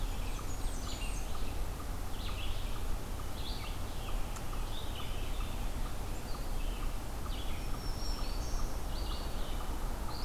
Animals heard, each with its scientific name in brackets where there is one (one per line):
Blackburnian Warbler (Setophaga fusca)
Black-throated Green Warbler (Setophaga virens)
Red-eyed Vireo (Vireo olivaceus)